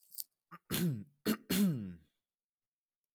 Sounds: Throat clearing